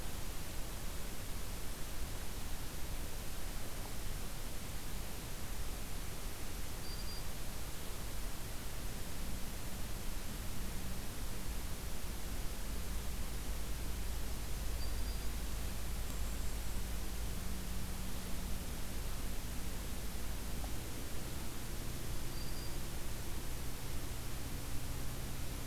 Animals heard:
Golden-crowned Kinglet (Regulus satrapa), Black-throated Green Warbler (Setophaga virens)

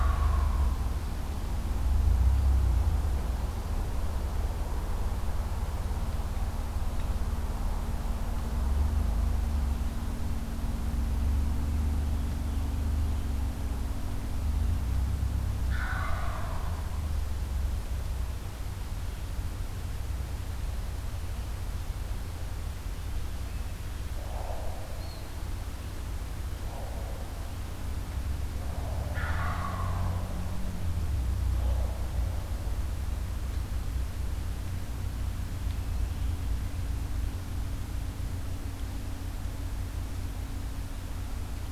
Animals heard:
Wild Turkey (Meleagris gallopavo), Eastern Wood-Pewee (Contopus virens)

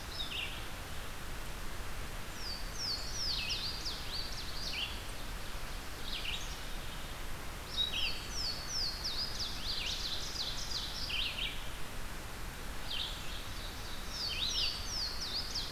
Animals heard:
Louisiana Waterthrush (Parkesia motacilla), Ovenbird (Seiurus aurocapilla), Red-eyed Vireo (Vireo olivaceus)

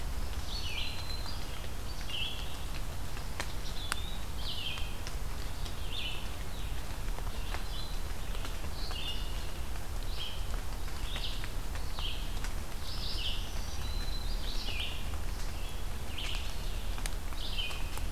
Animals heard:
Red-eyed Vireo (Vireo olivaceus), Eastern Wood-Pewee (Contopus virens), Black-throated Green Warbler (Setophaga virens)

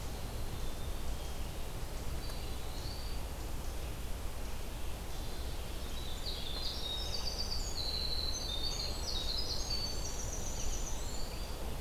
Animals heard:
Hermit Thrush (Catharus guttatus), Eastern Wood-Pewee (Contopus virens), Winter Wren (Troglodytes hiemalis)

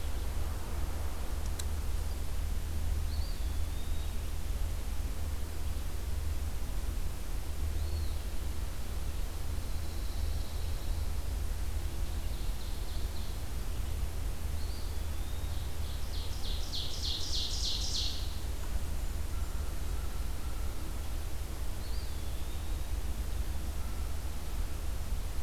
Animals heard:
Eastern Wood-Pewee (Contopus virens), Blackburnian Warbler (Setophaga fusca), Ovenbird (Seiurus aurocapilla), Pine Warbler (Setophaga pinus)

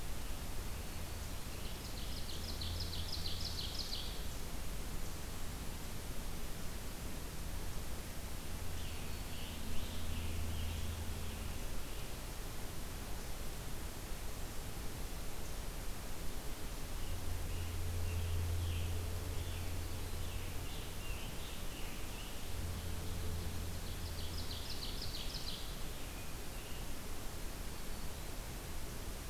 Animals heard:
Ovenbird (Seiurus aurocapilla), Scarlet Tanager (Piranga olivacea)

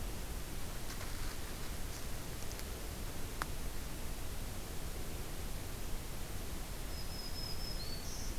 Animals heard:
Black-throated Green Warbler (Setophaga virens)

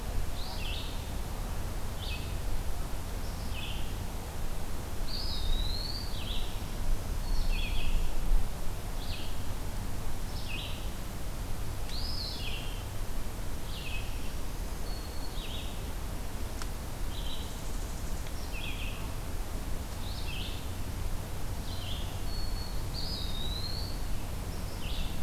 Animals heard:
Northern Parula (Setophaga americana), Eastern Wood-Pewee (Contopus virens), Red-eyed Vireo (Vireo olivaceus), Black-throated Green Warbler (Setophaga virens)

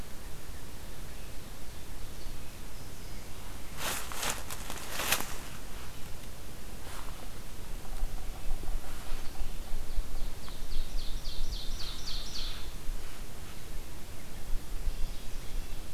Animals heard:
Yellow-bellied Sapsucker (Sphyrapicus varius), Ovenbird (Seiurus aurocapilla)

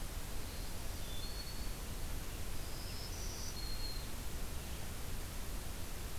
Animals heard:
Black-throated Green Warbler (Setophaga virens)

